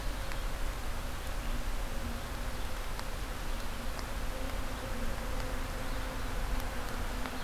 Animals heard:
forest ambience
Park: Marsh-Billings-Rockefeller National Historical Park